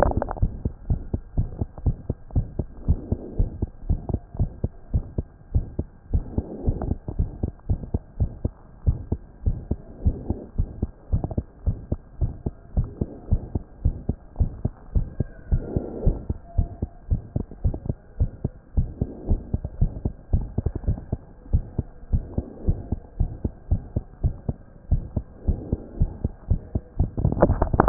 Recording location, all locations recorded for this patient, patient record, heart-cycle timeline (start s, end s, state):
pulmonary valve (PV)
aortic valve (AV)+pulmonary valve (PV)+tricuspid valve (TV)+mitral valve (MV)
#Age: Child
#Sex: Female
#Height: 104.0 cm
#Weight: 15.1 kg
#Pregnancy status: False
#Murmur: Present
#Murmur locations: aortic valve (AV)+mitral valve (MV)+pulmonary valve (PV)
#Most audible location: pulmonary valve (PV)
#Systolic murmur timing: Early-systolic
#Systolic murmur shape: Plateau
#Systolic murmur grading: II/VI
#Systolic murmur pitch: Low
#Systolic murmur quality: Blowing
#Diastolic murmur timing: nan
#Diastolic murmur shape: nan
#Diastolic murmur grading: nan
#Diastolic murmur pitch: nan
#Diastolic murmur quality: nan
#Outcome: Abnormal
#Campaign: 2014 screening campaign
0.12	0.16	systole
0.16	0.22	S2
0.22	0.40	diastole
0.40	0.52	S1
0.52	0.64	systole
0.64	0.72	S2
0.72	0.88	diastole
0.88	1.00	S1
1.00	1.12	systole
1.12	1.20	S2
1.20	1.36	diastole
1.36	1.48	S1
1.48	1.60	systole
1.60	1.68	S2
1.68	1.84	diastole
1.84	1.96	S1
1.96	2.08	systole
2.08	2.16	S2
2.16	2.34	diastole
2.34	2.46	S1
2.46	2.58	systole
2.58	2.66	S2
2.66	2.86	diastole
2.86	2.98	S1
2.98	3.10	systole
3.10	3.18	S2
3.18	3.38	diastole
3.38	3.50	S1
3.50	3.60	systole
3.60	3.70	S2
3.70	3.88	diastole
3.88	4.00	S1
4.00	4.10	systole
4.10	4.20	S2
4.20	4.38	diastole
4.38	4.50	S1
4.50	4.62	systole
4.62	4.72	S2
4.72	4.92	diastole
4.92	5.04	S1
5.04	5.16	systole
5.16	5.26	S2
5.26	5.54	diastole
5.54	5.66	S1
5.66	5.78	systole
5.78	5.86	S2
5.86	6.12	diastole
6.12	6.24	S1
6.24	6.36	systole
6.36	6.44	S2
6.44	6.66	diastole
6.66	6.78	S1
6.78	6.88	systole
6.88	6.96	S2
6.96	7.18	diastole
7.18	7.30	S1
7.30	7.42	systole
7.42	7.52	S2
7.52	7.68	diastole
7.68	7.80	S1
7.80	7.92	systole
7.92	8.02	S2
8.02	8.20	diastole
8.20	8.30	S1
8.30	8.42	systole
8.42	8.52	S2
8.52	8.86	diastole
8.86	8.98	S1
8.98	9.10	systole
9.10	9.20	S2
9.20	9.46	diastole
9.46	9.58	S1
9.58	9.70	systole
9.70	9.78	S2
9.78	10.04	diastole
10.04	10.16	S1
10.16	10.28	systole
10.28	10.38	S2
10.38	10.58	diastole
10.58	10.68	S1
10.68	10.80	systole
10.80	10.90	S2
10.90	11.12	diastole
11.12	11.24	S1
11.24	11.36	systole
11.36	11.44	S2
11.44	11.66	diastole
11.66	11.78	S1
11.78	11.90	systole
11.90	12.00	S2
12.00	12.20	diastole
12.20	12.32	S1
12.32	12.44	systole
12.44	12.54	S2
12.54	12.76	diastole
12.76	12.88	S1
12.88	13.00	systole
13.00	13.08	S2
13.08	13.30	diastole
13.30	13.42	S1
13.42	13.54	systole
13.54	13.62	S2
13.62	13.84	diastole
13.84	13.96	S1
13.96	14.08	systole
14.08	14.16	S2
14.16	14.38	diastole
14.38	14.52	S1
14.52	14.64	systole
14.64	14.72	S2
14.72	14.94	diastole
14.94	15.08	S1
15.08	15.18	systole
15.18	15.28	S2
15.28	15.50	diastole
15.50	15.64	S1
15.64	15.74	systole
15.74	15.84	S2
15.84	16.04	diastole
16.04	16.16	S1
16.16	16.28	systole
16.28	16.38	S2
16.38	16.56	diastole
16.56	16.68	S1
16.68	16.80	systole
16.80	16.90	S2
16.90	17.10	diastole
17.10	17.22	S1
17.22	17.36	systole
17.36	17.44	S2
17.44	17.64	diastole
17.64	17.76	S1
17.76	17.88	systole
17.88	17.96	S2
17.96	18.18	diastole
18.18	18.30	S1
18.30	18.44	systole
18.44	18.52	S2
18.52	18.76	diastole
18.76	18.88	S1
18.88	19.00	systole
19.00	19.08	S2
19.08	19.28	diastole
19.28	19.40	S1
19.40	19.52	systole
19.52	19.62	S2
19.62	19.80	diastole
19.80	19.92	S1
19.92	20.04	systole
20.04	20.14	S2
20.14	20.32	diastole
20.32	20.46	S1
20.46	20.58	systole
20.58	20.70	S2
20.70	20.86	diastole
20.86	20.98	S1
20.98	21.10	systole
21.10	21.20	S2
21.20	21.52	diastole
21.52	21.64	S1
21.64	21.78	systole
21.78	21.86	S2
21.86	22.12	diastole
22.12	22.24	S1
22.24	22.36	systole
22.36	22.46	S2
22.46	22.66	diastole
22.66	22.78	S1
22.78	22.90	systole
22.90	23.00	S2
23.00	23.18	diastole
23.18	23.30	S1
23.30	23.44	systole
23.44	23.52	S2
23.52	23.70	diastole
23.70	23.82	S1
23.82	23.94	systole
23.94	24.04	S2
24.04	24.22	diastole
24.22	24.34	S1
24.34	24.48	systole
24.48	24.56	S2
24.56	24.90	diastole
24.90	25.04	S1
25.04	25.16	systole
25.16	25.24	S2
25.24	25.48	diastole
25.48	25.60	S1
25.60	25.70	systole
25.70	25.80	S2
25.80	25.98	diastole
25.98	26.10	S1
26.10	26.22	systole
26.22	26.32	S2
26.32	26.50	diastole
26.50	26.60	S1
26.60	26.74	systole
26.74	26.82	S2
26.82	26.98	diastole
26.98	27.10	S1
27.10	27.20	systole
27.20	27.34	S2
27.34	27.48	diastole
27.48	27.60	S1
27.60	27.78	systole
27.78	27.80	S2
27.80	27.82	diastole
27.82	27.89	S1